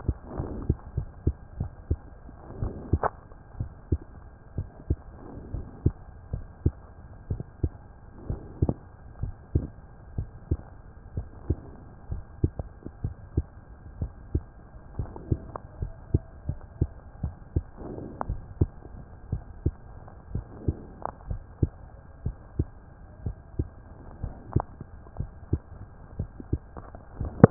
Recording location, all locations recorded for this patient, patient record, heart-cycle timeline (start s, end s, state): mitral valve (MV)
aortic valve (AV)+pulmonary valve (PV)+tricuspid valve (TV)+mitral valve (MV)
#Age: Child
#Sex: Female
#Height: 111.0 cm
#Weight: 20.4 kg
#Pregnancy status: False
#Murmur: Absent
#Murmur locations: nan
#Most audible location: nan
#Systolic murmur timing: nan
#Systolic murmur shape: nan
#Systolic murmur grading: nan
#Systolic murmur pitch: nan
#Systolic murmur quality: nan
#Diastolic murmur timing: nan
#Diastolic murmur shape: nan
#Diastolic murmur grading: nan
#Diastolic murmur pitch: nan
#Diastolic murmur quality: nan
#Outcome: Normal
#Campaign: 2015 screening campaign
0.00	3.55	unannotated
3.55	3.72	S1
3.72	3.88	systole
3.88	4.02	S2
4.02	4.56	diastole
4.56	4.68	S1
4.68	4.86	systole
4.86	5.00	S2
5.00	5.52	diastole
5.52	5.66	S1
5.66	5.82	systole
5.82	5.94	S2
5.94	6.31	diastole
6.31	6.44	S1
6.44	6.62	systole
6.62	6.76	S2
6.76	7.29	diastole
7.29	7.44	S1
7.44	7.61	systole
7.61	7.72	S2
7.72	8.28	diastole
8.28	8.40	S1
8.40	8.60	systole
8.60	8.76	S2
8.76	9.20	diastole
9.20	9.34	S1
9.34	9.54	systole
9.54	9.68	S2
9.68	10.16	diastole
10.16	10.30	S1
10.30	10.48	systole
10.48	10.60	S2
10.60	11.14	diastole
11.14	11.28	S1
11.28	11.46	systole
11.46	11.60	S2
11.60	12.10	diastole
12.10	12.24	S1
12.24	12.40	systole
12.40	12.54	S2
12.54	13.02	diastole
13.02	13.16	S1
13.16	13.36	systole
13.36	13.48	S2
13.48	13.98	diastole
13.98	14.12	S1
14.12	14.32	systole
14.32	14.46	S2
14.46	14.96	diastole
14.96	15.10	S1
15.10	15.30	systole
15.30	15.44	S2
15.44	15.80	diastole
15.80	15.92	S1
15.92	16.09	systole
16.09	16.21	S2
16.21	16.45	diastole
16.45	16.55	S1
16.55	16.80	systole
16.80	16.88	S2
16.88	17.22	diastole
17.22	17.36	S1
17.36	17.52	systole
17.52	17.66	S2
17.66	18.26	diastole
18.26	18.42	S1
18.42	18.58	systole
18.58	18.72	S2
18.72	19.30	diastole
19.30	19.44	S1
19.44	19.64	systole
19.64	19.76	S2
19.76	20.32	diastole
20.32	20.46	S1
20.46	20.66	systole
20.66	20.78	S2
20.78	21.28	diastole
21.28	21.42	S1
21.42	21.60	systole
21.60	21.74	S2
21.74	22.24	diastole
22.24	22.36	S1
22.36	22.56	systole
22.56	22.70	S2
22.70	23.24	diastole
23.24	23.36	S1
23.36	23.58	systole
23.58	23.70	S2
23.70	24.22	diastole
24.22	24.34	S1
24.34	24.52	systole
24.52	24.66	S2
24.66	25.18	diastole
25.18	25.30	S1
25.30	25.50	systole
25.50	25.62	S2
25.62	26.16	diastole
26.16	26.30	S1
26.30	26.50	systole
26.50	26.62	S2
26.62	27.16	diastole
27.16	27.30	S1
27.30	27.50	unannotated